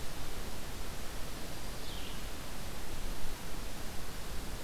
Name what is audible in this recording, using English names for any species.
Red-eyed Vireo